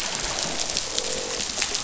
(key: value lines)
label: biophony, croak
recorder: SoundTrap 500